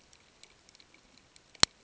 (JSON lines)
{"label": "ambient", "recorder": "HydroMoth"}